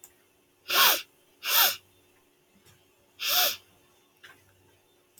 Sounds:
Sniff